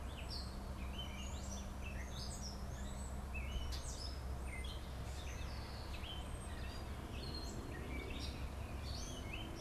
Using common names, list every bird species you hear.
Gray Catbird